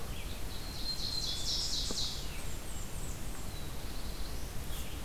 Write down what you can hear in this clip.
Red-eyed Vireo, Ovenbird, Black-throated Green Warbler, Blackburnian Warbler, Black-throated Blue Warbler